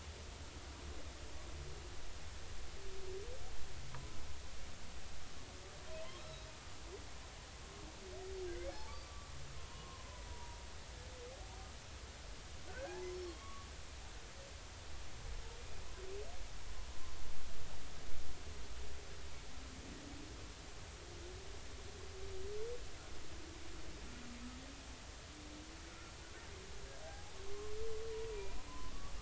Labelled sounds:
3.9	4.2	humpback whale, 0.93 to 1.0 kHz
6.2	6.5	humpback whale, 3.7 to 4.1 kHz
8.5	9.3	humpback whale, 0.80 to 2.3 kHz
9.7	10.6	humpback whale, 0.90 to 1.1 kHz
12.7	13.7	humpback whale, 0.80 to 4.4 kHz
25.9	26.1	humpback whale, 1.3 to 1.5 kHz
27.0	27.3	humpback whale, 0.80 to 0.86 kHz
28.3	28.9	humpback whale, 0.93 to 2.5 kHz

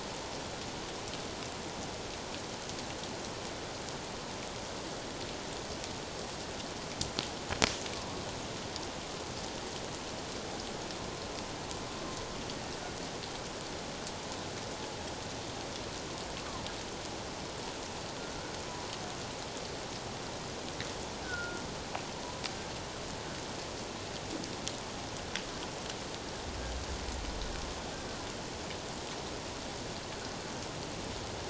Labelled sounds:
21.2	21.6	humpback whale, 1.3 to 1.7 kHz

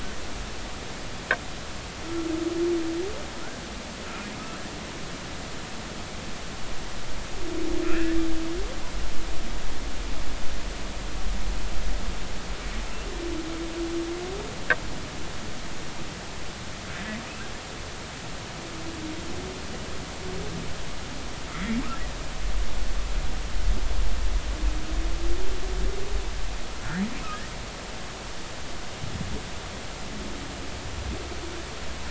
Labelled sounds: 7.9	8.1	humpback whale, 2.3 to 2.8 kHz
21.5	21.8	humpback whale, 1.8 to 2.2 kHz

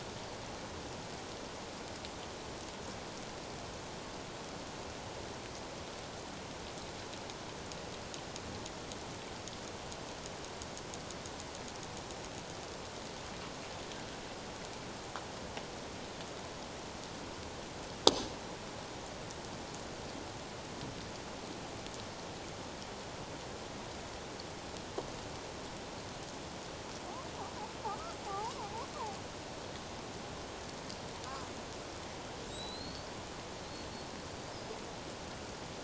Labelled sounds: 27.9	28.9	killer whale, Bigg's (transient), 0.78 to 1.4 kHz
32.5	33.1	killer whale, Bigg's (transient), 3.7 to 8.0 kHz

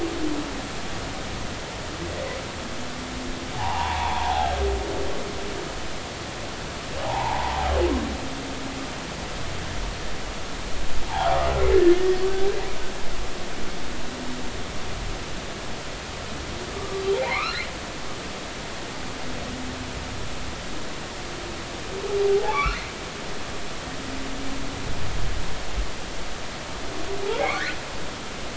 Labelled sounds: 3.5	4.5	humpback whale, 0.80 to 2.8 kHz
7.0	7.6	humpback whale, 0.80 to 1.1 kHz
11.7	12.4	humpback whale, 1.7 to 4.6 kHz
16.7	17.7	humpback whale, 0.86 to 4.3 kHz
22.2	22.8	humpback whale, 0.80 to 2.8 kHz

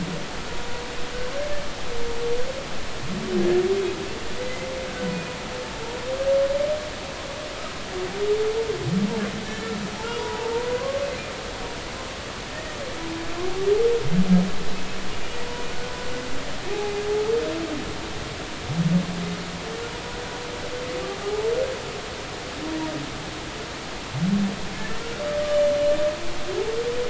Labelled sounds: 4.4	4.7	humpback whale, 2.0 to 2.1 kHz
9.5	9.8	humpback whale, 1.6 to 1.9 kHz
10.2	11.1	humpback whale, 0.86 to 1.2 kHz
16.7	16.9	humpback whale, 0.80 to 0.90 kHz
24.8	25.7	humpback whale, 1.7 to 3.0 kHz

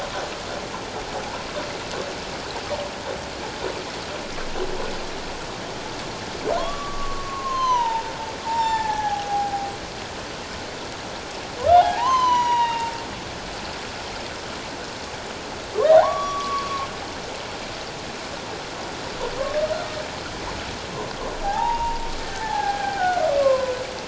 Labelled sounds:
6.6	9.7	humpback whale, 0.78 to 7.4 kHz
11.7	12.9	humpback whale, 0.78 to 6.9 kHz
15.8	16.9	humpback whale, 0.78 to 3.8 kHz
21.4	23.8	humpback whale, 0.78 to 1.8 kHz

